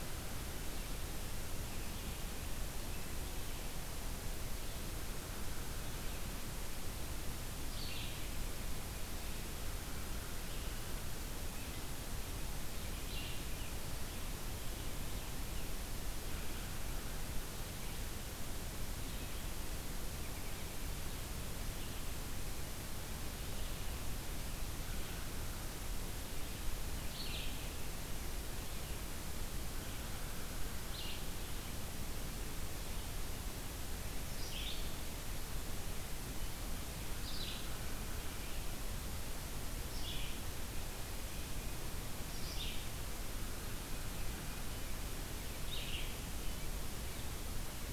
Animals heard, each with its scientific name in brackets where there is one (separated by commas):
Red-eyed Vireo (Vireo olivaceus)